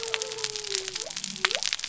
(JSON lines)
{"label": "biophony", "recorder": "SoundTrap 300"}